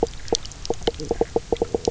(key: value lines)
label: biophony, knock croak
recorder: SoundTrap 300